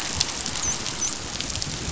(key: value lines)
label: biophony, dolphin
recorder: SoundTrap 500